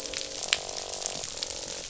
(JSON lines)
{"label": "biophony, croak", "recorder": "SoundTrap 500"}